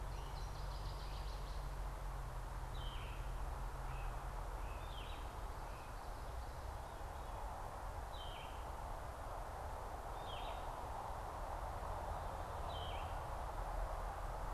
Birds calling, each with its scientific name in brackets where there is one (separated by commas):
Northern Waterthrush (Parkesia noveboracensis), Yellow-throated Vireo (Vireo flavifrons)